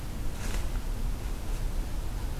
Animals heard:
forest ambience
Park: Acadia National Park